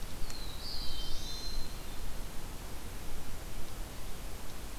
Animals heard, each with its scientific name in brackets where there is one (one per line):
Hermit Thrush (Catharus guttatus)
Black-throated Blue Warbler (Setophaga caerulescens)